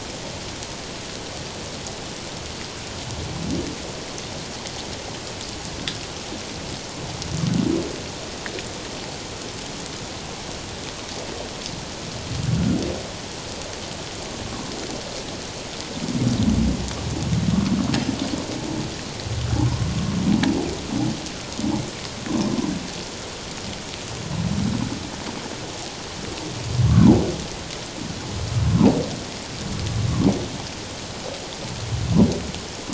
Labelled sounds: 19.6	19.9	humpback whale, 0.78 to 1.1 kHz
26.9	27.2	humpback whale, 0.78 to 1.2 kHz

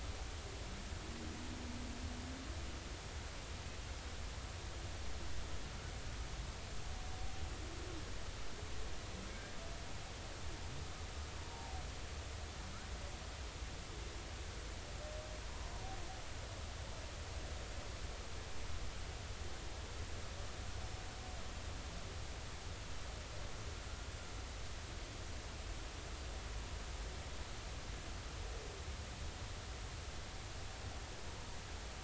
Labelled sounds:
11.4	11.8	humpback whale, 0.80 to 0.99 kHz

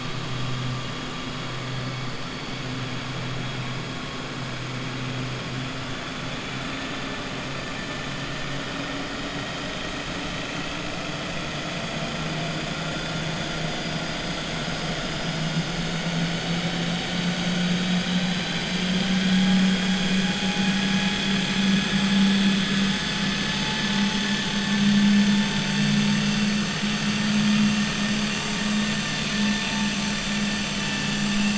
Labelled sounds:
18.0	18.8	killer whale, 3.0 to 4.9 kHz

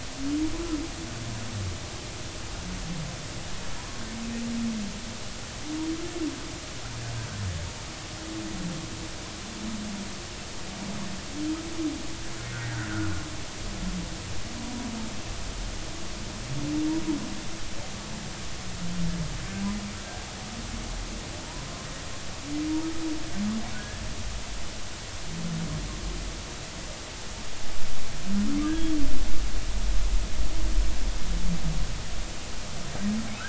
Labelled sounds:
3.8	4.0	humpback whale, 0.93 to 1.1 kHz
12.5	12.8	humpback whale, 1.4 to 1.7 kHz
14.6	14.9	humpback whale, 0.93 to 1.0 kHz
23.8	24.0	humpback whale, 1.6 to 1.8 kHz

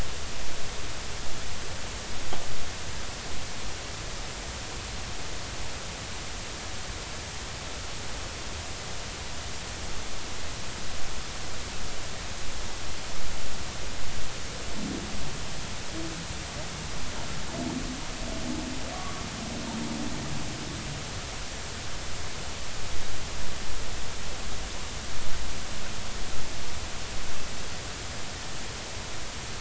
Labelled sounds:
18.9	19.2	humpback whale, 1.1 to 1.2 kHz

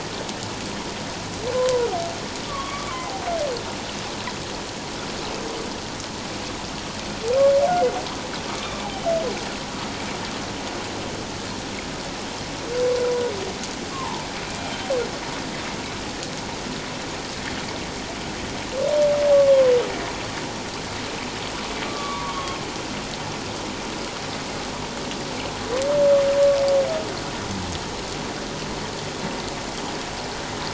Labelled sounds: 1.5	1.9	humpback whale, 0.91 to 1.1 kHz
2.5	3.2	humpback whale, 0.78 to 1.3 kHz
8.6	8.9	humpback whale, 3.4 to 3.7 kHz
13.9	14.2	humpback whale, 0.81 to 1.2 kHz
19.3	19.7	humpback whale, 0.94 to 1.2 kHz
21.9	22.6	humpback whale, 0.91 to 3.3 kHz

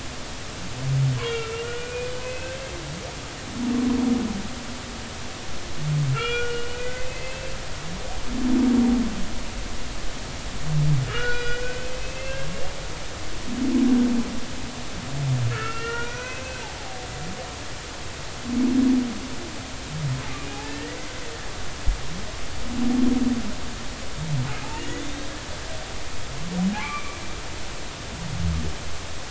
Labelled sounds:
1.2	2.6	humpback whale, 1.3 to 2.9 kHz
6.1	7.5	humpback whale, 1.2 to 3.4 kHz
11.1	12.5	humpback whale, 1.2 to 4.9 kHz
15.5	16.7	humpback whale, 1.2 to 6.0 kHz
20.3	21.0	humpback whale, 1.7 to 2.6 kHz
24.7	25.3	humpback whale, 1.8 to 3.8 kHz
26.8	27.2	humpback whale, 0.99 to 2.4 kHz

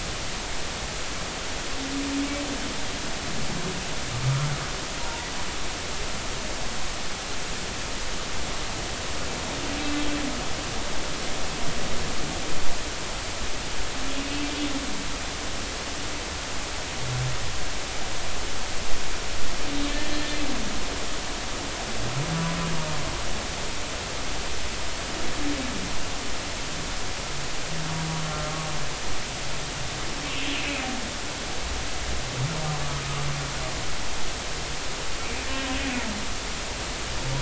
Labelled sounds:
4.2	4.5	humpback whale, 1.2 to 1.4 kHz
5.0	5.3	humpback whale, 0.90 to 0.99 kHz
9.8	10.1	humpback whale, 3.7 to 3.9 kHz
20.1	20.3	humpback whale, 3.2 to 3.3 kHz
32.9	33.3	humpback whale, 1.1 to 1.3 kHz
35.2	35.5	humpback whale, 2.2 to 2.4 kHz

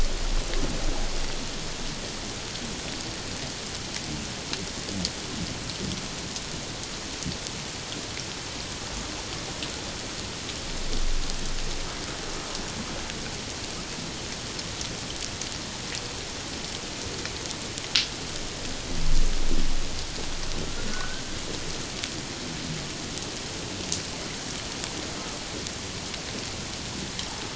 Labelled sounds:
20.9	21.2	humpback whale, 1.0 to 1.6 kHz

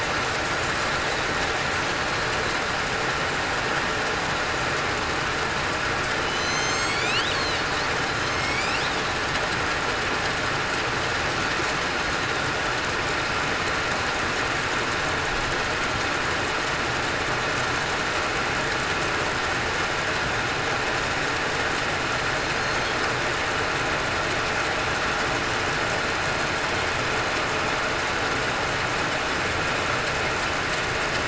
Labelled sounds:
6.3	7.1	killer whale, southern resident, 4.0 to 7.9 kHz
8.3	8.7	killer whale, southern resident, 2.1 to 2.5 kHz

